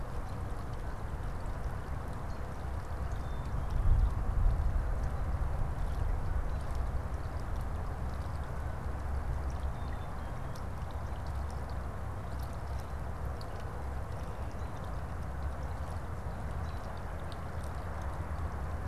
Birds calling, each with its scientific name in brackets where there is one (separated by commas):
Black-capped Chickadee (Poecile atricapillus), American Robin (Turdus migratorius)